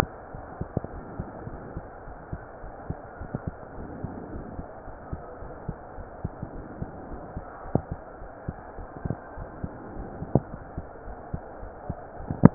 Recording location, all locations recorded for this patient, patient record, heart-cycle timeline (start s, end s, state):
aortic valve (AV)
aortic valve (AV)+pulmonary valve (PV)+tricuspid valve (TV)+mitral valve (MV)
#Age: Child
#Sex: Female
#Height: 130.0 cm
#Weight: 34.3 kg
#Pregnancy status: False
#Murmur: Absent
#Murmur locations: nan
#Most audible location: nan
#Systolic murmur timing: nan
#Systolic murmur shape: nan
#Systolic murmur grading: nan
#Systolic murmur pitch: nan
#Systolic murmur quality: nan
#Diastolic murmur timing: nan
#Diastolic murmur shape: nan
#Diastolic murmur grading: nan
#Diastolic murmur pitch: nan
#Diastolic murmur quality: nan
#Outcome: Normal
#Campaign: 2015 screening campaign
0.00	2.04	unannotated
2.04	2.16	S1
2.16	2.29	systole
2.29	2.42	S2
2.42	2.62	diastole
2.62	2.72	S1
2.72	2.88	systole
2.88	2.98	S2
2.98	3.18	diastole
3.18	3.30	S1
3.30	3.45	systole
3.45	3.56	S2
3.56	3.76	diastole
3.76	3.90	S1
3.90	4.02	systole
4.02	4.16	S2
4.16	4.32	diastole
4.32	4.46	S1
4.46	4.56	systole
4.56	4.66	S2
4.66	4.86	diastole
4.86	4.96	S1
4.96	5.08	systole
5.08	5.22	S2
5.22	5.40	diastole
5.40	5.52	S1
5.52	5.64	systole
5.64	5.76	S2
5.76	5.95	diastole
5.95	6.06	S1
6.06	6.20	systole
6.20	6.32	S2
6.32	6.52	diastole
6.52	6.66	S1
6.66	6.80	systole
6.80	6.90	S2
6.90	7.08	diastole
7.08	7.20	S1
7.20	7.32	systole
7.32	7.44	S2
7.44	7.63	diastole
7.63	7.76	S1
7.76	7.89	systole
7.89	8.00	S2
8.00	8.19	diastole
8.19	8.30	S1
8.30	8.44	systole
8.44	8.56	S2
8.56	8.75	diastole
8.75	8.88	S1
8.88	9.04	systole
9.04	9.18	S2
9.18	9.35	diastole
9.35	9.50	S1
9.50	9.60	systole
9.60	9.72	S2
9.72	9.94	diastole
9.94	10.12	S1
10.12	11.04	unannotated
11.04	11.18	S1
11.18	11.30	systole
11.30	11.42	S2
11.42	11.60	diastole
11.60	11.74	S1
11.74	11.88	systole
11.88	11.98	S2
11.98	12.18	diastole
12.18	12.27	S1
12.27	12.54	unannotated